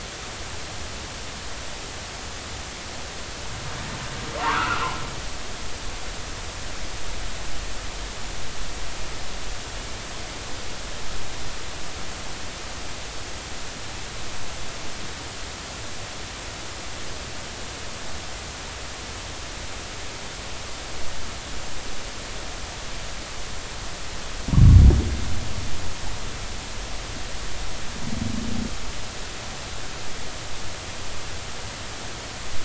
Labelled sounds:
4.4	4.9	humpback whale, 0.86 to 2.8 kHz

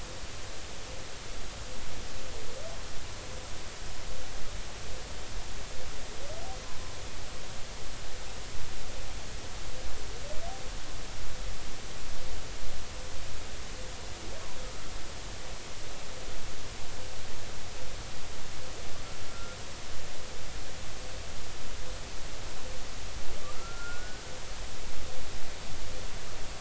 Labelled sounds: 19.3	19.6	humpback whale, 1.3 to 1.4 kHz
23.6	24.2	humpback whale, 1.3 to 1.6 kHz

